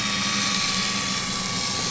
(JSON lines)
{"label": "anthrophony, boat engine", "recorder": "SoundTrap 500"}